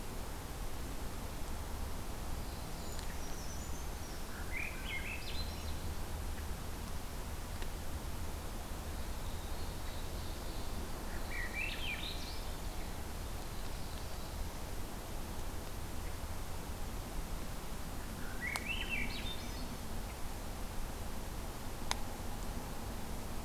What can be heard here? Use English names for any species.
Black-throated Blue Warbler, Brown Creeper, Swainson's Thrush, Ovenbird